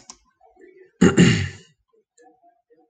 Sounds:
Throat clearing